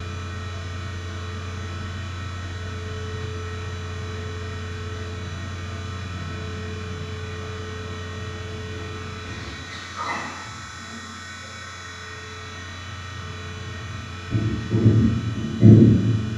Is there a machine buzzing?
yes